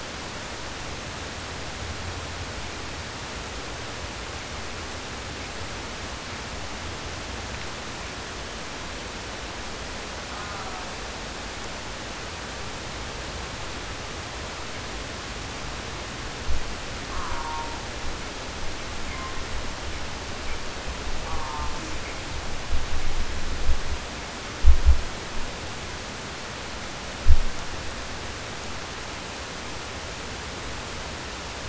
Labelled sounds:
10.2	11.0	killer whale, southern resident, 0.28 to 1.8 kHz
16.9	18.0	killer whale, southern resident, 0.57 to 2.1 kHz
21.2	21.9	killer whale, southern resident, 0.43 to 1.6 kHz

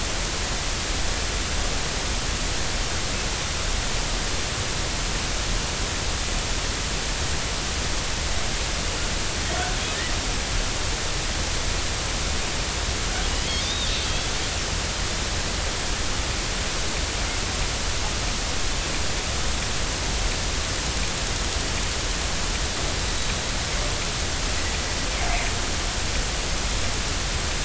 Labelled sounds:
13.6	14.3	killer whale, northern resident, G clan, 3.2 to 3.9 kHz

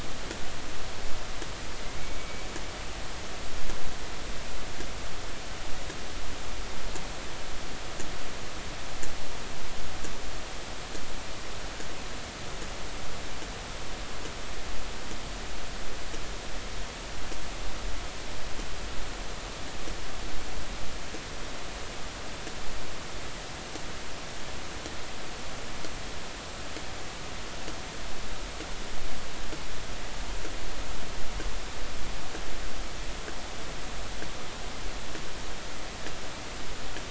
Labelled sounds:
2.0	2.4	killer whale, northern resident, A clan, 2.2 to 2.3 kHz

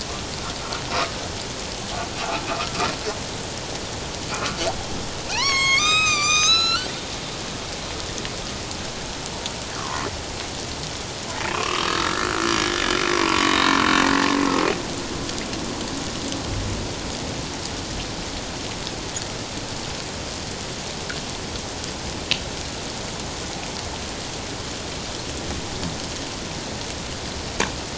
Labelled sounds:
2.5	2.8	humpback whale, 1.2 to 1.4 kHz
4.3	4.6	humpback whale, 1.0 to 1.5 kHz
5.3	6.9	humpback whale, 0.78 to 8.0 kHz
9.8	10.1	humpback whale, 0.88 to 1.4 kHz
11.5	12.5	humpback whale, 0.97 to 3.0 kHz
13.2	13.7	humpback whale, 0.88 to 4.0 kHz

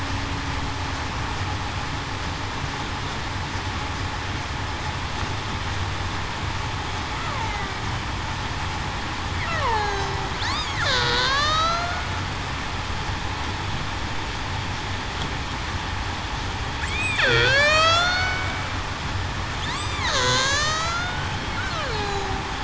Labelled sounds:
7.4	7.8	killer whale, Bigg's (transient), 1.9 to 2.2 kHz
9.4	10.2	killer whale, Bigg's (transient), 0.35 to 6.8 kHz
10.5	12.0	killer whale, Bigg's (transient), 0.45 to 8.0 kHz
17.2	18.3	killer whale, Bigg's (transient), 0.45 to 8.0 kHz
19.7	21.4	killer whale, Bigg's (transient), 0.98 to 8.0 kHz
21.7	22.4	killer whale, Bigg's (transient), 0.35 to 4.3 kHz

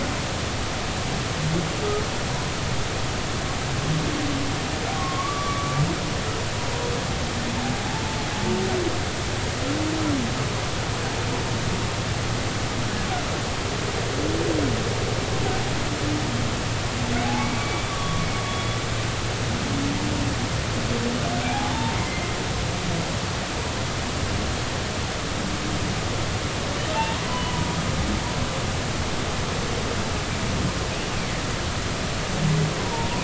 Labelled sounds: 5.0	5.8	humpback whale, 1.0 to 1.3 kHz
7.8	8.0	humpback whale, 0.80 to 0.93 kHz
17.2	18.3	humpback whale, 0.80 to 2.4 kHz
21.5	22.4	humpback whale, 0.80 to 2.2 kHz
26.9	27.6	humpback whale, 0.83 to 3.0 kHz
32.8	33.1	humpback whale, 0.86 to 1.0 kHz

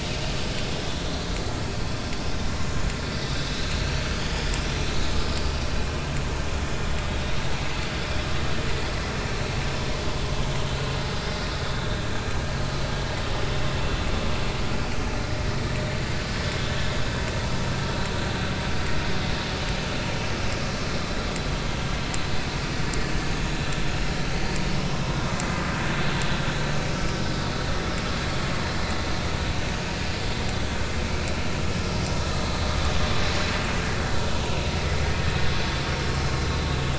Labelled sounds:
4.2	4.5	vessel noise, 3.2 to 3.5 kHz
9.6	9.9	vessel noise, 5.1 to 5.2 kHz

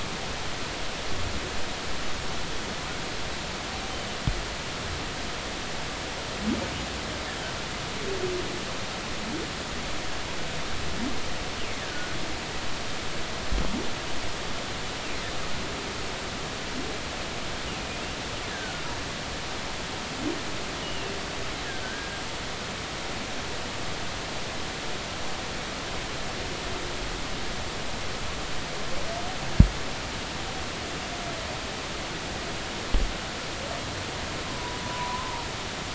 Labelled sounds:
11.8	12.2	humpback whale, 1.4 to 1.9 kHz
18.5	18.8	humpback whale, 1.4 to 1.8 kHz
20.8	21.1	humpback whale, 2.6 to 3.0 kHz
21.8	22.2	humpback whale, 1.5 to 1.7 kHz
34.5	35.5	humpback whale, 0.86 to 1.1 kHz

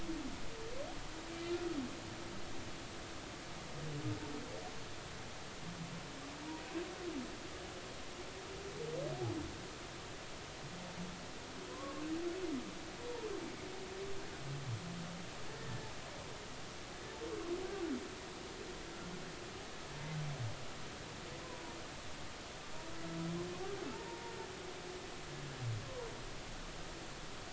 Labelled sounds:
11.7	12.0	humpback whale, 0.96 to 1.2 kHz
15.6	15.9	humpback whale, 1.7 to 1.9 kHz
23.9	24.3	humpback whale, 0.86 to 0.99 kHz

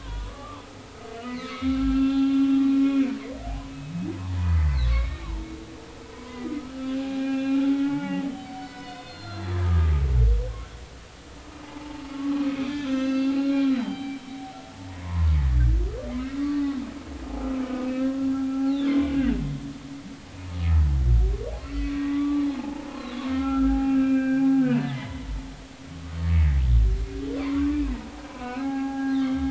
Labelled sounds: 0.0	0.6	humpback whale, 0.90 to 3.5 kHz
1.0	3.9	humpback whale, 0.80 to 3.6 kHz
4.4	5.5	humpback whale, 0.86 to 4.6 kHz
6.1	9.9	humpback whale, 0.80 to 5.3 kHz
11.6	14.2	humpback whale, 0.80 to 6.2 kHz
14.9	16.4	humpback whale, 0.86 to 1.8 kHz
17.9	19.1	humpback whale, 0.80 to 4.1 kHz
21.9	26.2	humpback whale, 0.80 to 3.7 kHz
27.4	29.2	humpback whale, 0.80 to 2.8 kHz

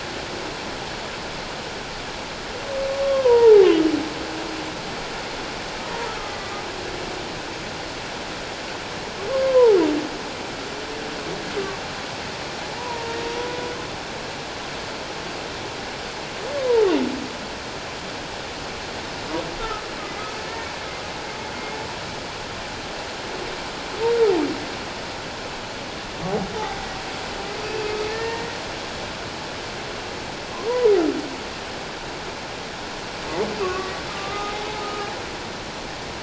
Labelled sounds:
3.0	3.7	humpback whale, 0.78 to 3.4 kHz
6.2	6.5	humpback whale, 1.1 to 2.0 kHz
9.3	9.8	humpback whale, 0.78 to 1.1 kHz
12.8	13.5	humpback whale, 0.88 to 5.8 kHz
27.6	28.6	humpback whale, 1.7 to 4.8 kHz
30.7	30.9	humpback whale, 0.91 to 1.0 kHz
33.6	35.1	humpback whale, 0.78 to 1.3 kHz

